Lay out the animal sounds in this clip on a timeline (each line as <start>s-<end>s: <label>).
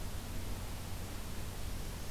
1.5s-2.1s: Black-throated Green Warbler (Setophaga virens)